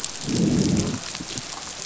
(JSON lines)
{"label": "biophony, growl", "recorder": "SoundTrap 500"}